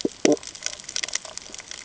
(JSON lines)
{"label": "ambient", "recorder": "HydroMoth"}